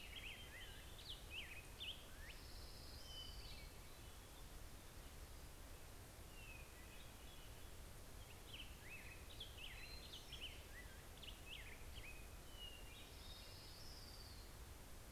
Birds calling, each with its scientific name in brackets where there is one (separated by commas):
Hermit Thrush (Catharus guttatus), Orange-crowned Warbler (Leiothlypis celata), Black-headed Grosbeak (Pheucticus melanocephalus)